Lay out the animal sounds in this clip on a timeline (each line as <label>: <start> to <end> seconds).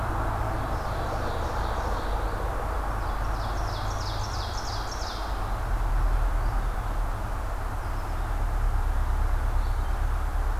Red-eyed Vireo (Vireo olivaceus): 0.0 to 3.4 seconds
Ovenbird (Seiurus aurocapilla): 0.3 to 2.6 seconds
Ovenbird (Seiurus aurocapilla): 2.9 to 5.3 seconds
Red-eyed Vireo (Vireo olivaceus): 6.0 to 10.6 seconds